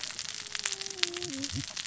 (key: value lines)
label: biophony, cascading saw
recorder: SoundTrap 600 or HydroMoth